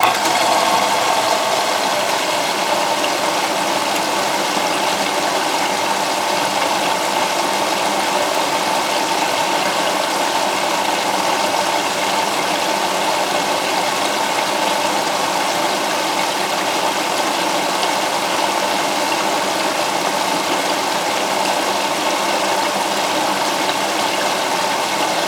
Is this water?
yes